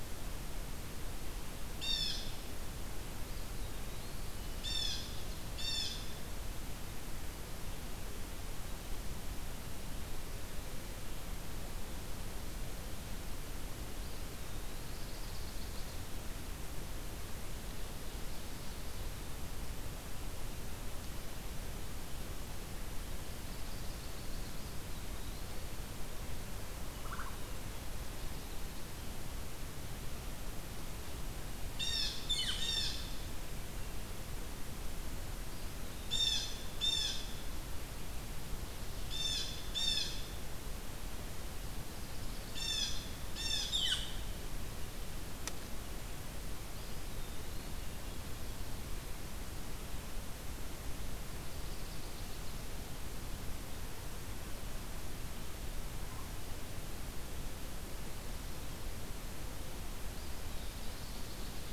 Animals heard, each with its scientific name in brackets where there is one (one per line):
Chestnut-sided Warbler (Setophaga pensylvanica)
Blue Jay (Cyanocitta cristata)
Common Loon (Gavia immer)
Eastern Wood-Pewee (Contopus virens)
Ovenbird (Seiurus aurocapilla)